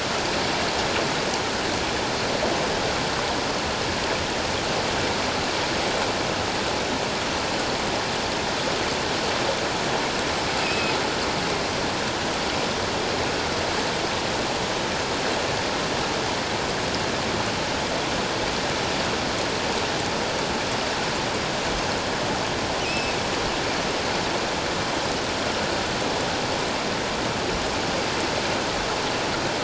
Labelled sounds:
10.6	11.0	killer whale, offshore, 2.4 to 2.7 kHz
22.8	23.1	killer whale, offshore, 2.3 to 5.3 kHz

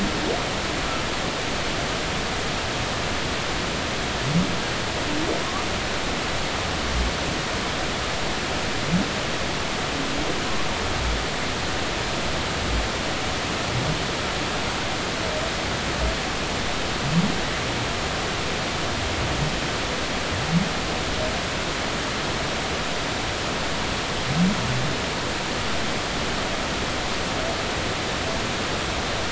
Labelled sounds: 5.4	5.7	humpback whale, 0.96 to 1.2 kHz

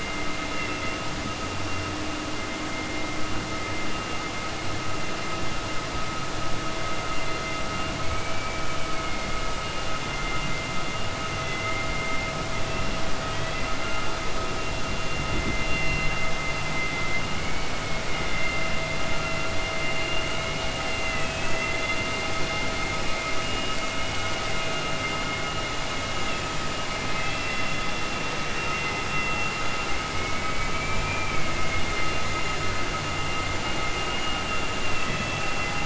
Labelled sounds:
17.3	18.4	vessel noise, 1.4 to 3.5 kHz
20.9	22.0	vessel noise, 1.3 to 4.1 kHz
23.9	24.4	vessel noise, 1.4 to 3.8 kHz
30.1	31.5	vessel noise, 2.1 to 3.1 kHz
34.8	35.8	vessel noise, 2.0 to 3.4 kHz

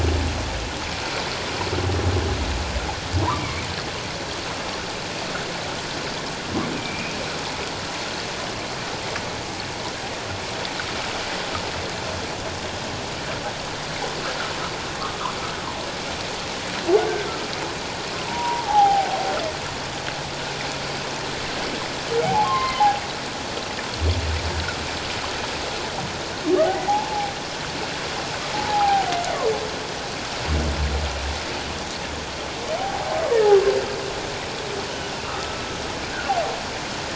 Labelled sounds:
3.2	3.7	humpback whale, 0.88 to 2.4 kHz
6.7	7.2	humpback whale, 2.2 to 2.7 kHz
18.2	19.1	humpback whale, 0.78 to 1.1 kHz
22.2	22.9	humpback whale, 0.78 to 2.2 kHz
26.9	27.3	humpback whale, 0.78 to 0.97 kHz
28.5	29.1	humpback whale, 0.78 to 1.0 kHz
32.8	33.1	humpback whale, 0.78 to 0.88 kHz
35.2	35.7	humpback whale, 1.1 to 1.4 kHz

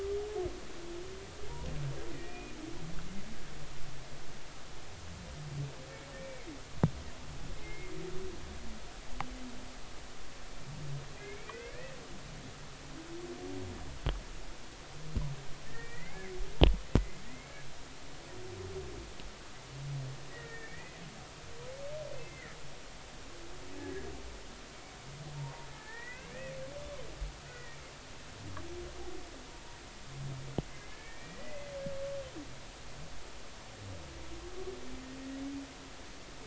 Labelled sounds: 2.1	2.5	humpback whale, 1.8 to 2.5 kHz
6.2	6.5	humpback whale, 2.0 to 2.3 kHz
7.6	7.9	humpback whale, 2.0 to 2.2 kHz
11.2	11.9	humpback whale, 1.4 to 2.7 kHz
15.7	16.3	humpback whale, 1.7 to 2.3 kHz
17.0	17.5	humpback whale, 1.8 to 2.3 kHz
20.3	21.0	humpback whale, 1.7 to 2.6 kHz
22.1	22.6	humpback whale, 1.7 to 2.1 kHz
23.7	24.1	humpback whale, 1.6 to 2.0 kHz
25.8	26.6	humpback whale, 1.4 to 2.8 kHz
27.4	27.9	humpback whale, 1.8 to 2.4 kHz
30.7	31.7	humpback whale, 1.7 to 2.2 kHz

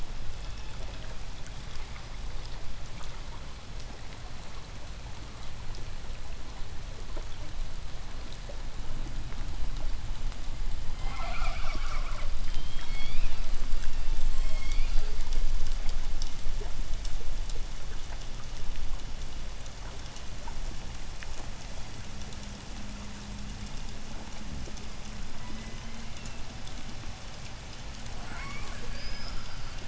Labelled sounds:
0.0	1.5	killer whale, southern resident, J pod, 0.29 to 4.3 kHz
10.8	12.5	killer whale, southern resident, J pod, call S10, 0.35 to 7.6 kHz
12.5	15.5	killer whale, southern resident, J pod, 0.77 to 8.0 kHz
25.0	26.5	killer whale, southern resident, J pod, 0.90 to 6.3 kHz
27.9	29.8	killer whale, southern resident, J pod, 0.22 to 8.0 kHz

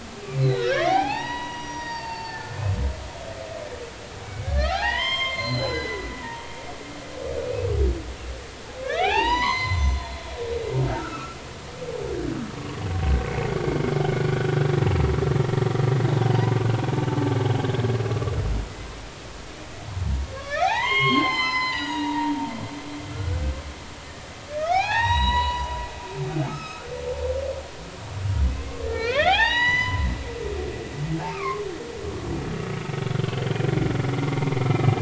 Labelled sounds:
0.4	2.6	humpback whale, 0.80 to 5.9 kHz
4.2	6.5	humpback whale, 0.80 to 7.5 kHz
8.8	11.4	humpback whale, 0.80 to 7.4 kHz
12.6	13.6	humpback whale, 1.0 to 2.3 kHz
20.3	22.3	humpback whale, 0.80 to 6.9 kHz
23.1	23.4	humpback whale, 1.3 to 1.6 kHz
24.5	25.7	humpback whale, 0.80 to 7.7 kHz
26.5	26.9	humpback whale, 1.2 to 5.3 kHz
28.5	30.1	humpback whale, 0.80 to 7.0 kHz
31.2	31.6	humpback whale, 0.99 to 2.7 kHz
33.2	33.6	humpback whale, 3.0 to 3.2 kHz
34.3	34.7	humpback whale, 2.0 to 2.2 kHz

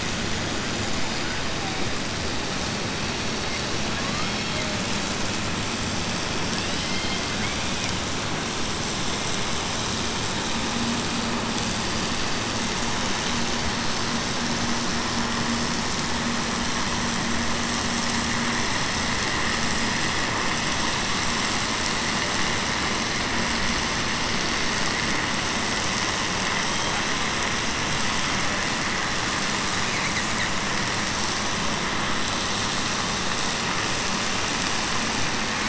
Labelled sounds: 3.9	4.7	killer whale, southern resident, 0.57 to 4.0 kHz

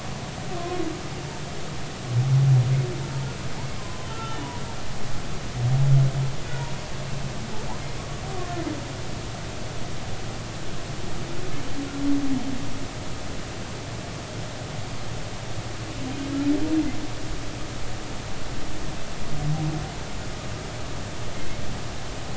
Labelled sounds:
3.8	4.4	humpback whale, 0.96 to 1.4 kHz
8.3	8.6	humpback whale, 1.0 to 1.2 kHz

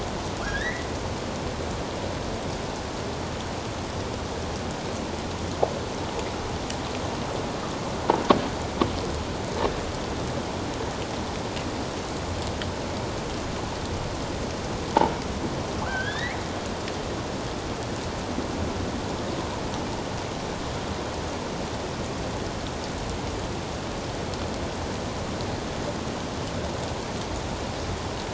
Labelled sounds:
0.4	0.9	killer whale, offshore, 1.3 to 4.0 kHz
15.8	16.4	killer whale, offshore, 1.3 to 4.1 kHz

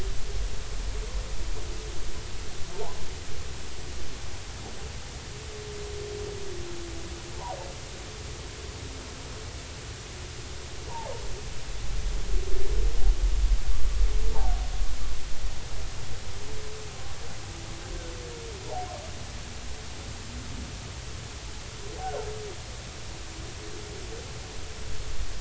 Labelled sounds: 18.6	18.9	humpback whale, 0.80 to 0.99 kHz

